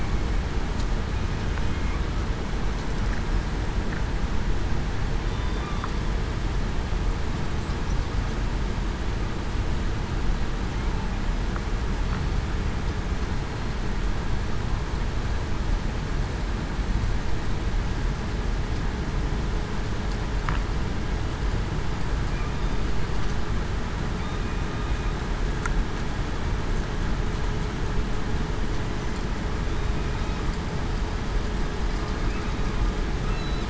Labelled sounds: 5.2	5.7	killer whale, southern resident, 3.5 to 3.6 kHz

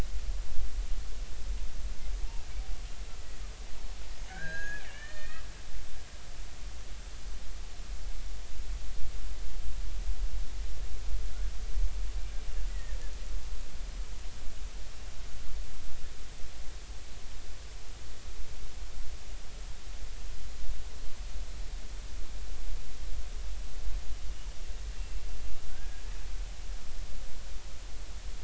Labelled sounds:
4.3	5.4	killer whale, Bigg's (transient), 1.4 to 6.6 kHz
12.7	13.0	killer whale, Bigg's (transient), 1.7 to 2.0 kHz
25.0	26.0	killer whale, Bigg's (transient), 1.4 to 2.8 kHz

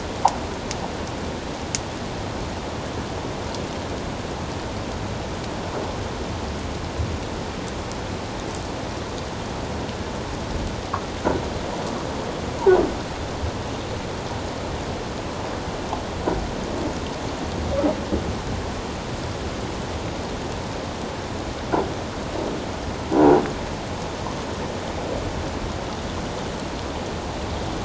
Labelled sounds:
23.2	23.4	croaking sound likely from a nearby submerged object, 0.78 to 1.0 kHz

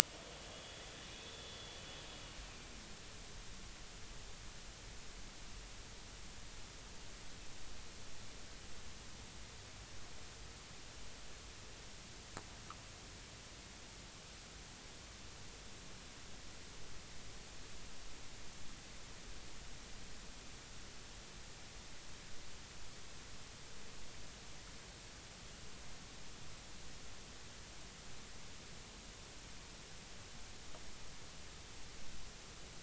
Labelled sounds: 0.5	0.8	vessel noise, 3.3 to 3.5 kHz
1.3	1.7	vessel noise, 3.3 to 3.6 kHz

